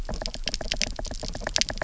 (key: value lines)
label: biophony
recorder: SoundTrap 300